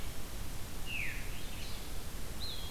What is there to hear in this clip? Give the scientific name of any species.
Vireo olivaceus, Catharus fuscescens, Contopus virens